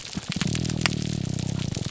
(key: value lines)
label: biophony, grouper groan
recorder: SoundTrap 300